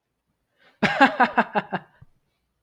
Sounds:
Laughter